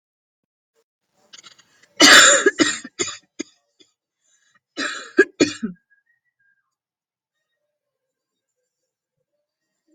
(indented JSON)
{
  "expert_labels": [
    {
      "quality": "ok",
      "cough_type": "dry",
      "dyspnea": false,
      "wheezing": false,
      "stridor": false,
      "choking": false,
      "congestion": false,
      "nothing": true,
      "diagnosis": "COVID-19",
      "severity": "mild"
    },
    {
      "quality": "good",
      "cough_type": "dry",
      "dyspnea": false,
      "wheezing": false,
      "stridor": false,
      "choking": false,
      "congestion": false,
      "nothing": true,
      "diagnosis": "COVID-19",
      "severity": "mild"
    },
    {
      "quality": "good",
      "cough_type": "dry",
      "dyspnea": false,
      "wheezing": false,
      "stridor": false,
      "choking": false,
      "congestion": false,
      "nothing": true,
      "diagnosis": "upper respiratory tract infection",
      "severity": "mild"
    },
    {
      "quality": "good",
      "cough_type": "dry",
      "dyspnea": false,
      "wheezing": false,
      "stridor": false,
      "choking": false,
      "congestion": false,
      "nothing": true,
      "diagnosis": "upper respiratory tract infection",
      "severity": "mild"
    }
  ],
  "gender": "female",
  "respiratory_condition": false,
  "fever_muscle_pain": false,
  "status": "COVID-19"
}